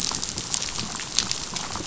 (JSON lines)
{"label": "biophony, rattle", "recorder": "SoundTrap 500"}